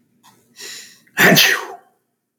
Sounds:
Sneeze